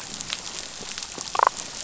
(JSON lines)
{"label": "biophony, damselfish", "recorder": "SoundTrap 500"}